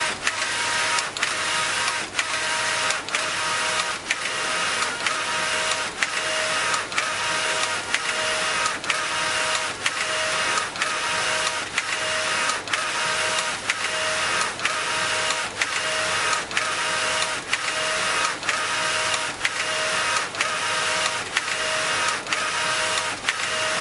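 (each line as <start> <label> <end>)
0.0 Rhythmic, metallic rustling sounds of machinery. 23.8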